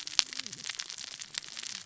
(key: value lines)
label: biophony, cascading saw
recorder: SoundTrap 600 or HydroMoth